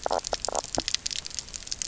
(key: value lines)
label: biophony, knock croak
recorder: SoundTrap 300